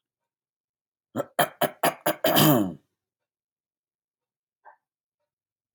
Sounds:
Throat clearing